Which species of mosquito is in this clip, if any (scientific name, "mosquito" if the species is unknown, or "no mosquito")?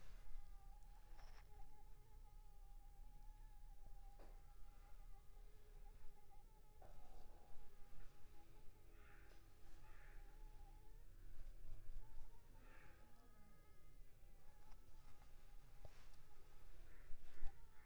Anopheles funestus s.s.